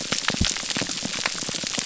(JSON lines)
{"label": "biophony, pulse", "recorder": "SoundTrap 300"}